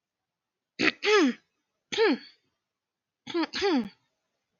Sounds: Throat clearing